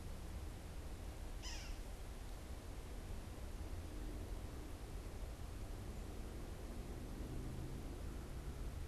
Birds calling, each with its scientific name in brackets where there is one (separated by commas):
Yellow-bellied Sapsucker (Sphyrapicus varius)